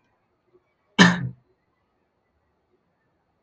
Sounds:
Cough